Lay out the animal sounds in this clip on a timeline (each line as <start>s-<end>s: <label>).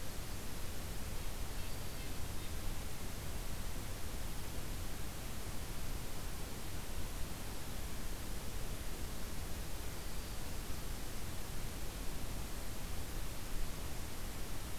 0.9s-2.7s: Red-breasted Nuthatch (Sitta canadensis)
1.5s-2.1s: Black-throated Green Warbler (Setophaga virens)
9.8s-10.6s: Black-throated Green Warbler (Setophaga virens)